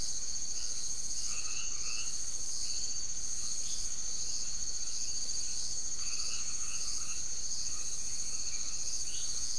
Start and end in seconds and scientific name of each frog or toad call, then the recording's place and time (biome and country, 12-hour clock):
0.0	9.5	Boana faber
0.9	9.5	Adenomera marmorata
Atlantic Forest, Brazil, 9:15pm